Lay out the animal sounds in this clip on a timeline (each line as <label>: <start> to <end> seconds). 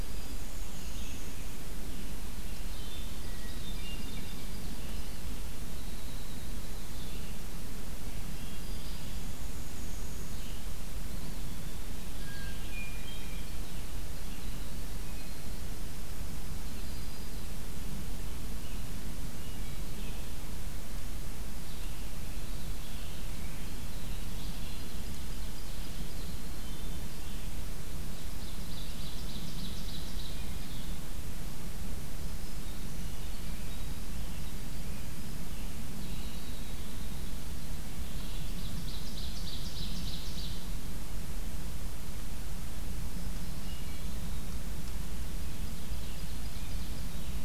Black-throated Green Warbler (Setophaga virens): 0.0 to 0.6 seconds
Red-eyed Vireo (Vireo olivaceus): 0.0 to 47.4 seconds
Ovenbird (Seiurus aurocapilla): 0.1 to 1.4 seconds
Winter Wren (Troglodytes hiemalis): 2.5 to 7.4 seconds
Hermit Thrush (Catharus guttatus): 3.1 to 4.6 seconds
Hermit Thrush (Catharus guttatus): 7.9 to 9.2 seconds
Black-and-white Warbler (Mniotilta varia): 8.9 to 10.5 seconds
Eastern Wood-Pewee (Contopus virens): 11.0 to 12.2 seconds
Hermit Thrush (Catharus guttatus): 12.1 to 13.5 seconds
Hermit Thrush (Catharus guttatus): 19.1 to 19.9 seconds
Ovenbird (Seiurus aurocapilla): 24.4 to 26.3 seconds
Ovenbird (Seiurus aurocapilla): 27.8 to 30.4 seconds
Winter Wren (Troglodytes hiemalis): 34.3 to 37.7 seconds
Ovenbird (Seiurus aurocapilla): 38.0 to 40.8 seconds
Hermit Thrush (Catharus guttatus): 43.2 to 44.5 seconds
Ovenbird (Seiurus aurocapilla): 45.2 to 47.2 seconds